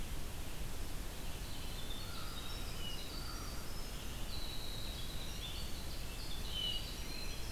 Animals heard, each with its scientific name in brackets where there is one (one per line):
American Crow (Corvus brachyrhynchos)
Red-eyed Vireo (Vireo olivaceus)
Winter Wren (Troglodytes hiemalis)